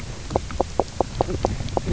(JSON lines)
{"label": "biophony, knock croak", "recorder": "SoundTrap 300"}